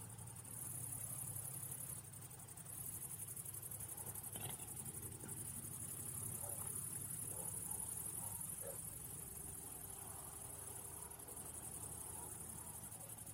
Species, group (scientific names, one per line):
Tettigonia viridissima
Orthoptera